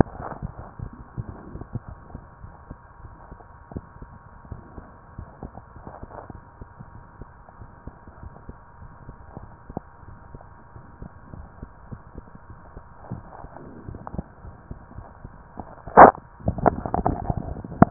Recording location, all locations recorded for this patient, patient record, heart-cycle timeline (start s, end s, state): mitral valve (MV)
aortic valve (AV)+pulmonary valve (PV)+tricuspid valve (TV)+mitral valve (MV)
#Age: Child
#Sex: Female
#Height: 121.0 cm
#Weight: 25.6 kg
#Pregnancy status: False
#Murmur: Unknown
#Murmur locations: nan
#Most audible location: nan
#Systolic murmur timing: nan
#Systolic murmur shape: nan
#Systolic murmur grading: nan
#Systolic murmur pitch: nan
#Systolic murmur quality: nan
#Diastolic murmur timing: nan
#Diastolic murmur shape: nan
#Diastolic murmur grading: nan
#Diastolic murmur pitch: nan
#Diastolic murmur quality: nan
#Outcome: Normal
#Campaign: 2015 screening campaign
0.00	1.86	unannotated
1.86	2.00	S1
2.00	2.11	systole
2.11	2.23	S2
2.23	2.42	diastole
2.42	2.54	S1
2.54	2.66	systole
2.66	2.80	S2
2.80	3.00	diastole
3.00	3.12	S1
3.12	3.28	systole
3.28	3.38	S2
3.38	3.70	diastole
3.70	3.84	S1
3.84	4.00	systole
4.00	4.10	S2
4.10	4.50	diastole
4.50	4.62	S1
4.62	4.74	systole
4.74	4.84	S2
4.84	5.14	diastole
5.14	5.26	S1
5.26	5.40	systole
5.40	5.52	S2
5.52	5.72	diastole
5.72	5.84	S1
5.84	5.99	systole
5.99	6.09	S2
6.09	6.31	diastole
6.31	6.42	S1
6.42	6.57	systole
6.57	6.68	S2
6.68	17.90	unannotated